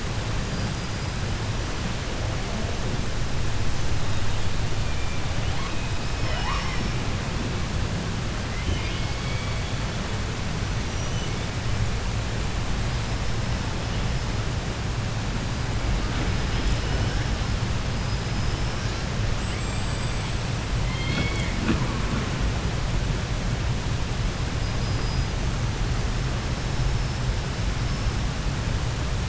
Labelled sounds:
0.3	1.7	killer whale, 4.4 to 5.5 kHz
3.9	7.0	killer whale, 0.10 to 6.2 kHz
8.4	10.2	killer whale, 1.7 to 5.5 kHz
10.5	12.1	killer whale, 1.7 to 6.6 kHz
12.7	14.7	killer whale, 4.6 to 8.0 kHz
15.3	19.2	killer whale, 0.57 to 8.0 kHz
19.3	21.6	killer whale, southern resident, 0.10 to 8.0 kHz
24.3	25.7	killer whale, 4.5 to 5.9 kHz
26.1	28.6	killer whale, 5.0 to 5.8 kHz

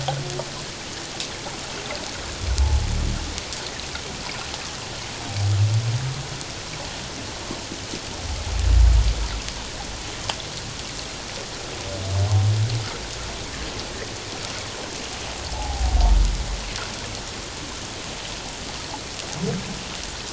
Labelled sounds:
15.5	16.0	humpback whale, 0.78 to 0.94 kHz

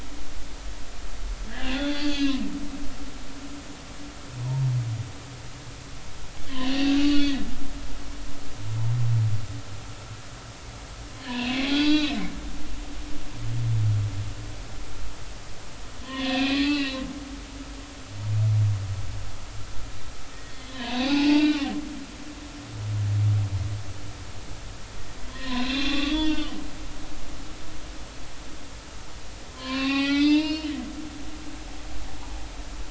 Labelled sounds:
1.5	2.4	humpback whale, 1.5 to 4.8 kHz
6.5	7.9	humpback whale, 1.7 to 6.0 kHz
11.2	12.2	humpback whale, 0.83 to 4.1 kHz
16.0	17.0	humpback whale, 0.96 to 4.4 kHz
20.3	21.7	humpback whale, 0.80 to 6.2 kHz
25.3	26.6	humpback whale, 0.86 to 4.3 kHz
29.5	30.7	humpback whale, 0.80 to 5.3 kHz

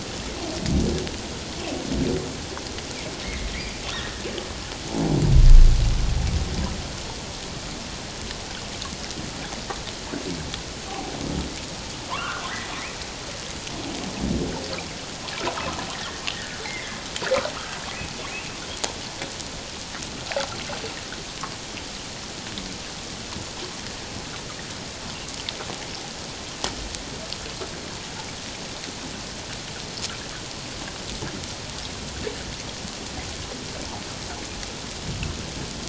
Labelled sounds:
3.2	4.3	humpback whale, 1.6 to 2.2 kHz
12.1	12.5	humpback whale, 0.88 to 1.6 kHz
15.9	17.0	humpback whale, 1.6 to 2.4 kHz
17.5	18.1	humpback whale, 1.1 to 2.6 kHz

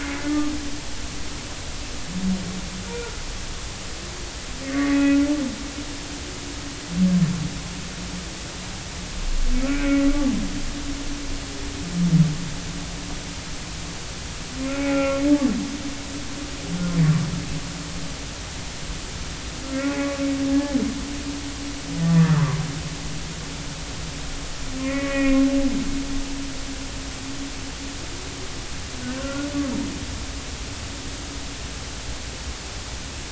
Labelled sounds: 2.9	3.2	humpback whale, 1.3 to 1.5 kHz
4.6	5.2	humpback whale, 1.8 to 2.6 kHz
9.6	10.1	humpback whale, 1.3 to 2.3 kHz
14.7	15.2	humpback whale, 0.80 to 2.6 kHz
19.6	20.0	humpback whale, 1.3 to 1.5 kHz
22.1	22.6	humpback whale, 0.93 to 1.9 kHz
24.8	25.4	humpback whale, 1.8 to 2.6 kHz
29.2	29.5	humpback whale, 1.3 to 1.5 kHz

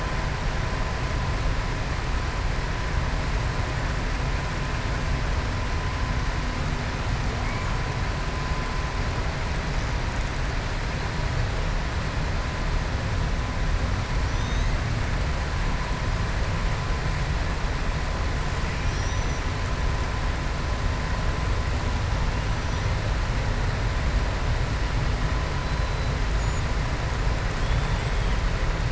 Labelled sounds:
14.3	14.7	killer whale, southern resident, 3.5 to 4.2 kHz
18.7	19.4	killer whale, southern resident, 2.4 to 6.1 kHz
27.5	28.3	killer whale, southern resident, 2.8 to 3.6 kHz

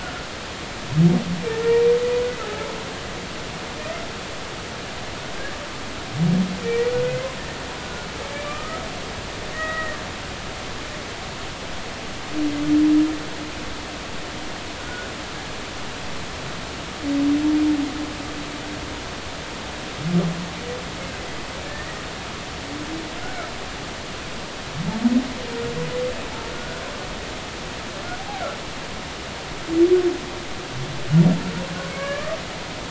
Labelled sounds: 0.0	0.3	humpback whale, 1.3 to 1.5 kHz
3.8	4.0	humpback whale, 1.8 to 2.1 kHz
6.6	7.3	humpback whale, 1.8 to 2.2 kHz
8.3	10.0	humpback whale, 1.1 to 2.5 kHz
14.8	15.1	humpback whale, 1.4 to 1.6 kHz
21.6	22.1	humpback whale, 1.7 to 2.0 kHz
23.2	23.5	humpback whale, 1.3 to 1.6 kHz
26.5	26.8	humpback whale, 1.4 to 1.6 kHz
31.9	32.4	humpback whale, 1.1 to 2.5 kHz

